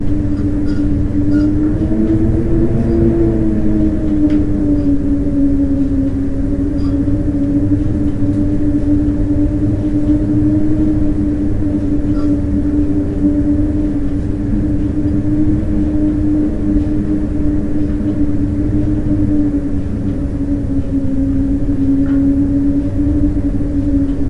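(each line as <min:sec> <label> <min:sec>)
0:00.0 A lamp swings quietly and steadily. 0:24.3
0:00.0 Wind howls loudly and continuously. 0:24.3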